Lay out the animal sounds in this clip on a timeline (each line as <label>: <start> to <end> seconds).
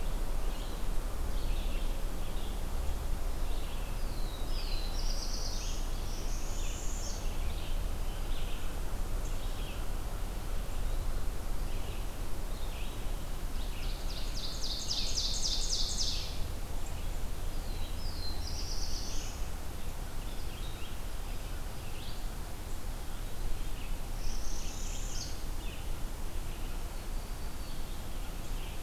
Red-eyed Vireo (Vireo olivaceus): 0.0 to 22.3 seconds
Black-throated Blue Warbler (Setophaga caerulescens): 3.9 to 6.0 seconds
Northern Parula (Setophaga americana): 6.0 to 7.3 seconds
Ovenbird (Seiurus aurocapilla): 13.4 to 16.5 seconds
Black-throated Blue Warbler (Setophaga caerulescens): 17.4 to 19.5 seconds
Red-eyed Vireo (Vireo olivaceus): 23.0 to 28.8 seconds
Northern Parula (Setophaga americana): 24.0 to 25.5 seconds
Black-throated Green Warbler (Setophaga virens): 26.8 to 28.2 seconds